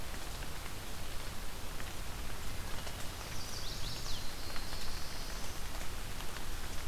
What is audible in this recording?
Chestnut-sided Warbler, Black-throated Blue Warbler